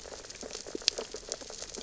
{"label": "biophony, sea urchins (Echinidae)", "recorder": "SoundTrap 600 or HydroMoth"}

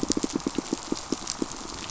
{"label": "biophony, pulse", "recorder": "SoundTrap 500"}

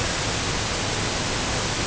{"label": "ambient", "recorder": "HydroMoth"}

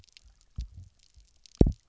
{"label": "biophony, double pulse", "recorder": "SoundTrap 300"}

